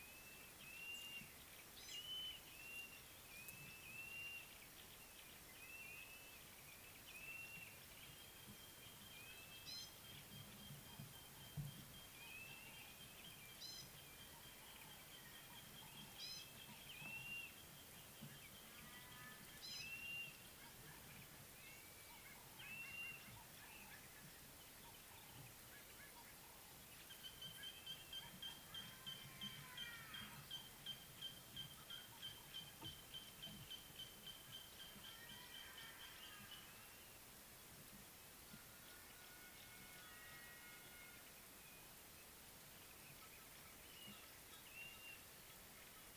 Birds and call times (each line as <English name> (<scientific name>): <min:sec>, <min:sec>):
Gray-backed Camaroptera (Camaroptera brevicaudata): 0:01.8, 0:16.3
Blue-naped Mousebird (Urocolius macrourus): 0:06.1, 0:09.7, 0:17.1, 0:22.9
Nubian Woodpecker (Campethera nubica): 0:31.3